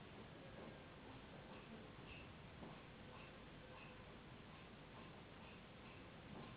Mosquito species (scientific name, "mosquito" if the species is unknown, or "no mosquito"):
Anopheles gambiae s.s.